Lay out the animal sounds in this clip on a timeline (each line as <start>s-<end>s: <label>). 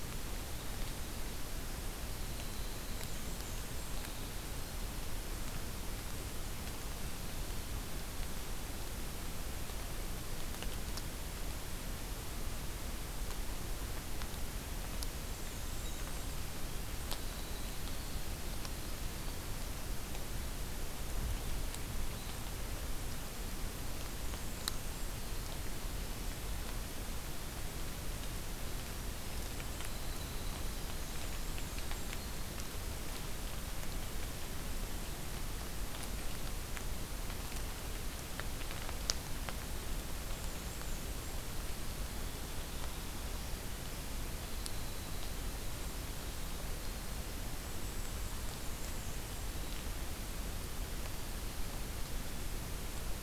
0.0s-4.9s: Winter Wren (Troglodytes hiemalis)
2.9s-3.9s: Black-and-white Warbler (Mniotilta varia)
15.2s-19.3s: Winter Wren (Troglodytes hiemalis)
15.2s-16.3s: Black-and-white Warbler (Mniotilta varia)
24.1s-25.1s: Black-and-white Warbler (Mniotilta varia)
29.5s-32.8s: Winter Wren (Troglodytes hiemalis)
31.0s-32.1s: Black-and-white Warbler (Mniotilta varia)
40.2s-41.4s: Black-and-white Warbler (Mniotilta varia)
43.6s-47.4s: Winter Wren (Troglodytes hiemalis)
47.6s-48.3s: Golden-crowned Kinglet (Regulus satrapa)
48.5s-49.5s: Black-and-white Warbler (Mniotilta varia)